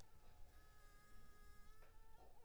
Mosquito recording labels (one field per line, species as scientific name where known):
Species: Anopheles arabiensis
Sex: female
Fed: unfed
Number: one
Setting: cup